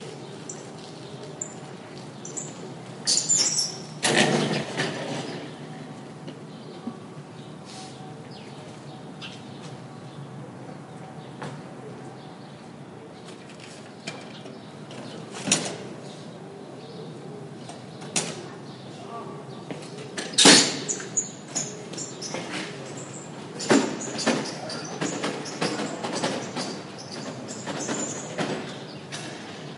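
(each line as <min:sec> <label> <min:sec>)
0:00.0 Gentle, distant splashing water. 0:05.6
0:00.0 Multiple birds chirping continuously in the distance. 0:29.8
0:03.0 A bird chirps loudly outdoors. 0:04.0
0:04.0 Someone drags something on hard ground, creating a rough, loud scraping sound. 0:05.6
0:06.2 Repeated gentle scraping sounds from dragging something on hard ground. 0:07.0
0:07.6 Someone inhales swiftly. 0:08.1
0:11.4 A gentle, distant thumping sound outdoors. 0:11.6
0:14.0 A letter is thrown loudly into a letterbox outdoors. 0:16.3
0:18.1 Metallic clacking sounds outdoors nearby. 0:19.0
0:19.1 A person is calling out in the distance outdoors. 0:19.7
0:20.2 Sharp metallic clack of a bike stand being kicked up outdoors. 0:21.6
0:22.3 A gentle scraping sound of something being dragged on hard ground. 0:23.4
0:23.6 Irregular rattling sounds with wooden and metallic tones. 0:29.8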